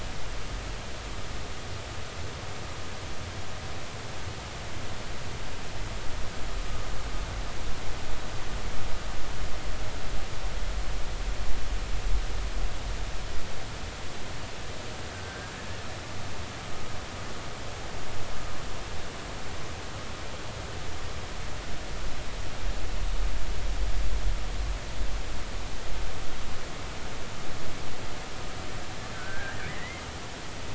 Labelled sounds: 15.1	15.5	killer whale, Bigg's (transient), 1.5 to 1.7 kHz
29.1	30.0	killer whale, Bigg's (transient), 1.3 to 2.2 kHz

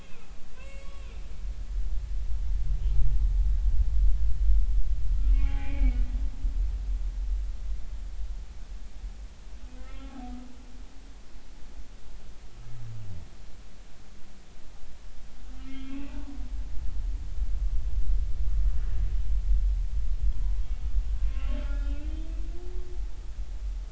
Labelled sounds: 0.6	1.0	humpback whale, 2.0 to 7.8 kHz
5.3	6.0	humpback whale, 0.80 to 2.6 kHz
9.7	10.3	humpback whale, 0.80 to 3.6 kHz
15.5	16.2	humpback whale, 1.2 to 3.3 kHz
21.3	22.1	humpback whale, 1.3 to 3.7 kHz

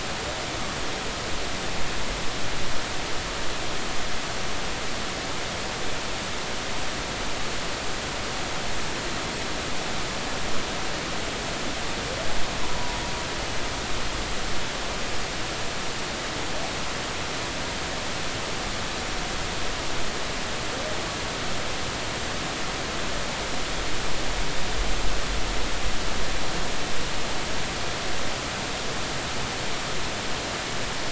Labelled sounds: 12.6	13.0	humpback whale, 0.90 to 1.0 kHz

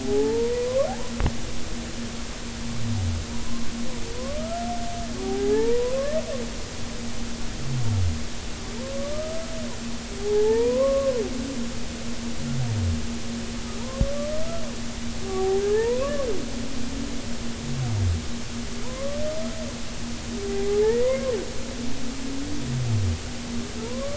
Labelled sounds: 0.0	0.9	humpback whale, 0.80 to 1.2 kHz
3.4	4.7	humpback whale, 0.96 to 1.4 kHz
5.2	6.1	humpback whale, 0.80 to 1.2 kHz
8.9	9.5	humpback whale, 0.99 to 1.3 kHz
10.2	11.2	humpback whale, 0.80 to 1.2 kHz
15.2	16.2	humpback whale, 0.80 to 1.9 kHz
18.8	19.2	humpback whale, 0.90 to 1.2 kHz
20.8	21.3	humpback whale, 1.7 to 2.2 kHz
23.8	24.1	humpback whale, 0.86 to 1.2 kHz

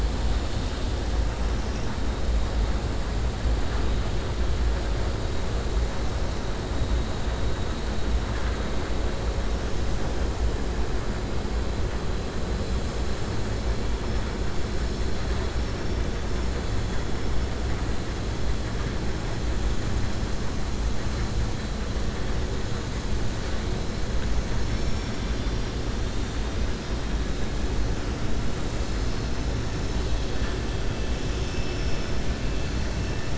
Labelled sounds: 24.5	25.7	vessel noise, 2.1 to 5.7 kHz

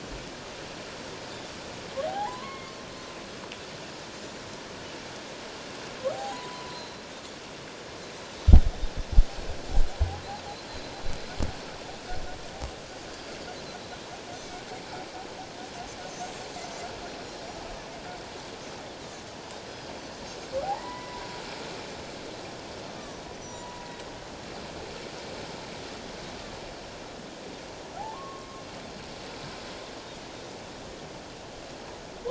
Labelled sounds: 2.1	2.7	humpback whale, 0.78 to 2.2 kHz
6.1	7.0	humpback whale, 0.78 to 4.2 kHz
20.6	21.3	humpback whale, 0.78 to 2.1 kHz
23.4	23.8	Pacific white-sided dolphin, 5.5 to 7.4 kHz
23.5	23.9	humpback whale, 0.88 to 1.0 kHz
28.0	28.6	humpback whale, 0.78 to 1.2 kHz

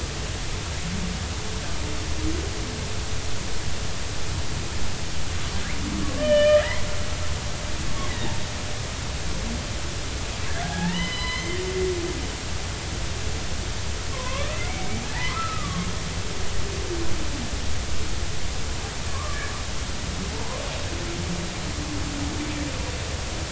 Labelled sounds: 6.2	6.8	humpback whale, 1.7 to 3.1 kHz
10.7	11.6	humpback whale, 0.80 to 5.1 kHz
14.1	15.9	humpback whale, 0.83 to 2.4 kHz
19.1	19.4	humpback whale, 0.96 to 1.2 kHz
20.3	20.6	humpback whale, 0.80 to 1.1 kHz

